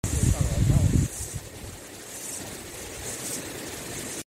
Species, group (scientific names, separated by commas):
Aleeta curvicosta, Cicadidae